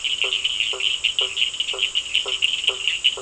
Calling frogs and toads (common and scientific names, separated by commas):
blacksmith tree frog (Boana faber), Cochran's lime tree frog (Sphaenorhynchus surdus)